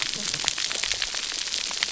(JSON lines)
{"label": "biophony, cascading saw", "recorder": "SoundTrap 300"}